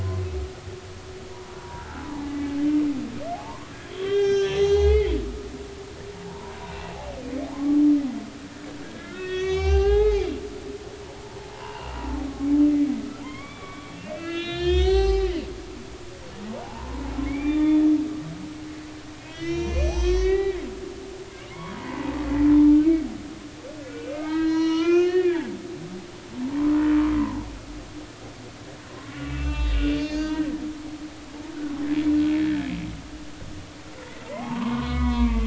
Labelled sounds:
1.3	2.5	humpback whale, 0.80 to 2.0 kHz
3.3	5.2	humpback whale, 0.80 to 6.5 kHz
6.2	7.0	humpback whale, 0.80 to 2.8 kHz
7.5	7.8	humpback whale, 0.99 to 1.2 kHz
8.8	10.2	humpback whale, 0.80 to 6.6 kHz
11.2	12.2	humpback whale, 0.83 to 2.9 kHz
13.2	15.3	humpback whale, 0.80 to 6.1 kHz
15.9	17.8	humpback whale, 0.80 to 7.8 kHz
19.3	20.7	humpback whale, 0.90 to 6.5 kHz
21.5	22.1	humpback whale, 0.83 to 1.2 kHz
23.8	25.5	humpback whale, 0.80 to 6.4 kHz
27.2	27.5	humpback whale, 0.83 to 1.1 kHz
28.9	30.5	humpback whale, 0.83 to 6.6 kHz
34.2	35.4	humpback whale, 0.80 to 3.8 kHz

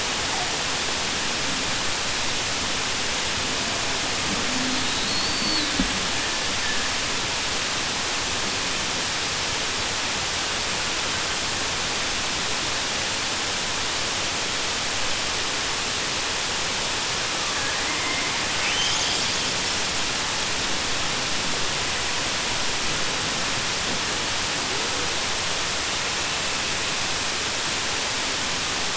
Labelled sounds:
4.8	5.7	killer whale, southern resident, 3.6 to 4.6 kHz
17.5	18.3	killer whale, southern resident, 0.87 to 2.2 kHz

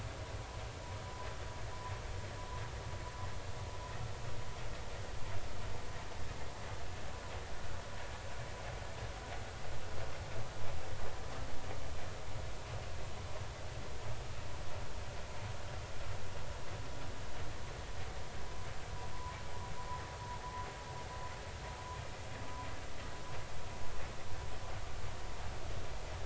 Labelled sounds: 19.1	19.4	vessel noise, 0.93 to 1.1 kHz

